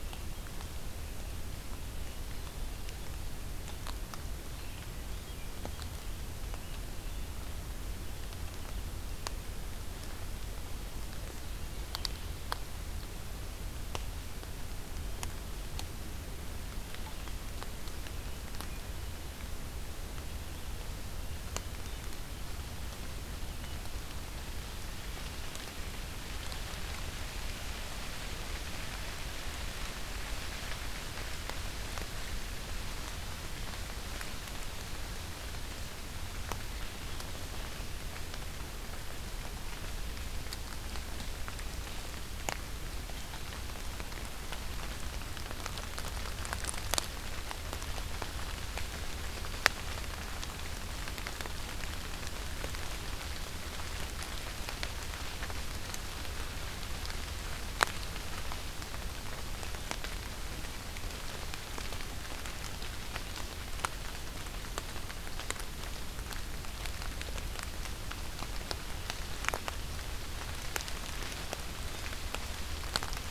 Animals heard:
forest ambience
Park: Acadia National Park